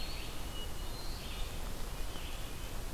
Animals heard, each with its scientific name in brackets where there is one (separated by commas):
Hermit Thrush (Catharus guttatus), Red-eyed Vireo (Vireo olivaceus), Eastern Wood-Pewee (Contopus virens)